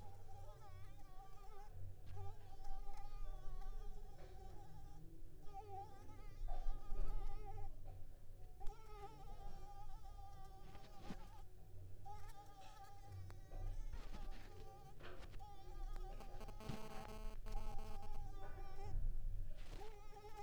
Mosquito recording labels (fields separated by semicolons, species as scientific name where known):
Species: Culex pipiens complex; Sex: female; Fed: unfed; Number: one; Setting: cup